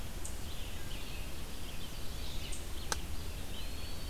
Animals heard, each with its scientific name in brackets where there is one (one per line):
Eastern Wood-Pewee (Contopus virens)
Eastern Chipmunk (Tamias striatus)
Red-eyed Vireo (Vireo olivaceus)